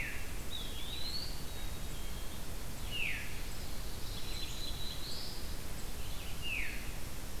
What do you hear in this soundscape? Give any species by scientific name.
Vireo olivaceus, Regulus satrapa, Contopus virens, Poecile atricapillus, Catharus fuscescens, Setophaga caerulescens